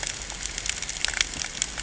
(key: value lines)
label: ambient
recorder: HydroMoth